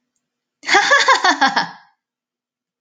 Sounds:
Laughter